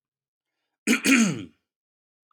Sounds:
Throat clearing